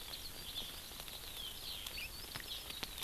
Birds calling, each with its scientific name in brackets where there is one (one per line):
Eurasian Skylark (Alauda arvensis)